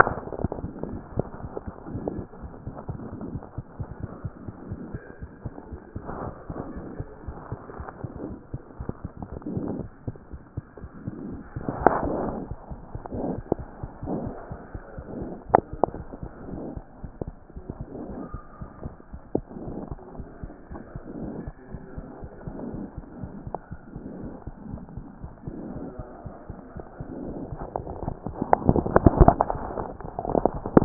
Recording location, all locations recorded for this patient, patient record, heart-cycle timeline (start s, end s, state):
aortic valve (AV)
aortic valve (AV)+aortic valve (AV)+mitral valve (MV)+mitral valve (MV)
#Age: Infant
#Sex: Female
#Height: 66.0 cm
#Weight: 8.2 kg
#Pregnancy status: False
#Murmur: Absent
#Murmur locations: nan
#Most audible location: nan
#Systolic murmur timing: nan
#Systolic murmur shape: nan
#Systolic murmur grading: nan
#Systolic murmur pitch: nan
#Systolic murmur quality: nan
#Diastolic murmur timing: nan
#Diastolic murmur shape: nan
#Diastolic murmur grading: nan
#Diastolic murmur pitch: nan
#Diastolic murmur quality: nan
#Outcome: Abnormal
#Campaign: 2014 screening campaign
0.00	2.82	unannotated
2.82	2.90	diastole
2.90	2.98	S1
2.98	3.12	systole
3.12	3.18	S2
3.18	3.30	diastole
3.30	3.42	S1
3.42	3.56	systole
3.56	3.64	S2
3.64	3.80	diastole
3.80	3.88	S1
3.88	4.00	systole
4.00	4.10	S2
4.10	4.24	diastole
4.24	4.32	S1
4.32	4.46	systole
4.46	4.52	S2
4.52	4.68	diastole
4.68	4.80	S1
4.80	4.92	systole
4.92	5.00	S2
5.00	5.22	diastole
5.22	5.30	S1
5.30	5.44	systole
5.44	5.52	S2
5.52	5.72	diastole
5.72	5.80	S1
5.80	5.94	systole
5.94	6.02	S2
6.02	6.22	diastole
6.22	6.32	S1
6.32	6.48	systole
6.48	6.58	S2
6.58	6.74	diastole
6.74	6.86	S1
6.86	6.98	systole
6.98	7.06	S2
7.06	7.26	diastole
7.26	7.36	S1
7.36	7.50	systole
7.50	7.60	S2
7.60	7.80	diastole
7.80	7.88	S1
7.88	8.02	systole
8.02	8.08	S2
8.08	8.28	diastole
8.28	8.37	S1
8.37	8.52	systole
8.52	8.60	S2
8.60	8.80	diastole
8.80	30.85	unannotated